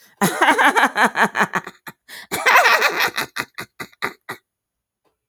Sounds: Laughter